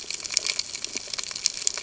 {"label": "ambient", "recorder": "HydroMoth"}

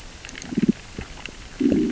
{"label": "biophony, growl", "recorder": "SoundTrap 600 or HydroMoth"}
{"label": "biophony, damselfish", "recorder": "SoundTrap 600 or HydroMoth"}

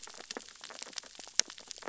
{"label": "biophony, sea urchins (Echinidae)", "recorder": "SoundTrap 600 or HydroMoth"}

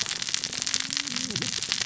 {"label": "biophony, cascading saw", "recorder": "SoundTrap 600 or HydroMoth"}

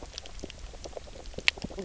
{"label": "biophony, knock croak", "recorder": "SoundTrap 300"}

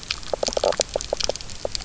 {"label": "biophony, knock croak", "recorder": "SoundTrap 300"}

